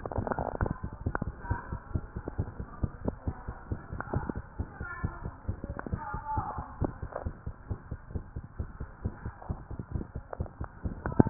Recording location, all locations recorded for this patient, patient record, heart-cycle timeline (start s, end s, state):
mitral valve (MV)
aortic valve (AV)+pulmonary valve (PV)+tricuspid valve (TV)+mitral valve (MV)
#Age: Child
#Sex: Female
#Height: 125.0 cm
#Weight: 31.9 kg
#Pregnancy status: False
#Murmur: Present
#Murmur locations: aortic valve (AV)+mitral valve (MV)+pulmonary valve (PV)+tricuspid valve (TV)
#Most audible location: pulmonary valve (PV)
#Systolic murmur timing: Mid-systolic
#Systolic murmur shape: Diamond
#Systolic murmur grading: II/VI
#Systolic murmur pitch: Medium
#Systolic murmur quality: Harsh
#Diastolic murmur timing: nan
#Diastolic murmur shape: nan
#Diastolic murmur grading: nan
#Diastolic murmur pitch: nan
#Diastolic murmur quality: nan
#Outcome: Abnormal
#Campaign: 2015 screening campaign
0.00	1.39	unannotated
1.39	1.50	diastole
1.50	1.57	S1
1.57	1.70	systole
1.70	1.80	S2
1.80	1.94	diastole
1.94	2.04	S1
2.04	2.14	systole
2.14	2.22	S2
2.22	2.38	diastole
2.38	2.48	S1
2.48	2.60	systole
2.60	2.66	S2
2.66	2.82	diastole
2.82	2.92	S1
2.92	3.03	systole
3.03	3.11	S2
3.11	3.26	diastole
3.26	3.32	S1
3.32	3.46	systole
3.46	3.52	S2
3.52	3.70	diastole
3.70	3.80	S1
3.80	3.92	systole
3.92	3.97	S2
3.97	4.14	diastole
4.14	4.23	S1
4.23	4.35	systole
4.35	4.44	S2
4.44	4.58	diastole
4.58	4.68	S1
4.68	4.80	systole
4.80	4.88	S2
4.88	5.02	diastole
5.02	5.14	S1
5.14	5.24	systole
5.24	5.32	S2
5.32	5.48	diastole
5.48	5.58	S1
5.58	5.66	systole
5.66	5.76	S2
5.76	5.92	diastole
5.92	6.02	S1
6.02	6.14	systole
6.14	6.22	S2
6.22	6.36	diastole
6.36	6.46	S1
6.46	6.56	systole
6.56	6.66	S2
6.66	6.80	diastole
6.80	6.94	S1
6.94	7.02	systole
7.02	7.10	S2
7.10	7.25	diastole
7.25	7.34	S1
7.34	7.48	systole
7.48	7.54	S2
7.54	7.70	diastole
7.70	7.78	S1
7.78	7.92	systole
7.92	8.00	S2
8.00	8.16	diastole
8.16	8.24	S1
8.24	8.36	systole
8.36	8.44	S2
8.44	8.60	diastole
8.60	8.70	S1
8.70	8.80	systole
8.80	8.86	S2
8.86	9.06	diastole
9.06	9.14	S1
9.14	9.26	systole
9.26	9.34	S2
9.34	9.50	diastole
9.50	9.60	S1
9.60	9.72	systole
9.72	9.82	S2
9.82	9.94	diastole
9.94	10.04	S1
10.04	10.15	systole
10.15	10.21	S2
10.21	10.40	diastole
10.40	10.47	S1
10.47	10.60	systole
10.60	10.67	S2
10.67	10.84	diastole
10.84	10.88	S1
10.88	11.30	unannotated